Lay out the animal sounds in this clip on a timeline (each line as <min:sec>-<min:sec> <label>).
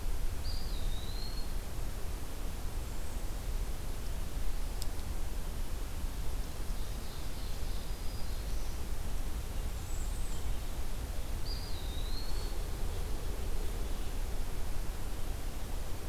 0:00.3-0:01.5 Eastern Wood-Pewee (Contopus virens)
0:06.2-0:08.8 Ovenbird (Seiurus aurocapilla)
0:07.8-0:08.9 Black-throated Green Warbler (Setophaga virens)
0:09.5-0:10.5 Bay-breasted Warbler (Setophaga castanea)
0:11.2-0:12.7 Eastern Wood-Pewee (Contopus virens)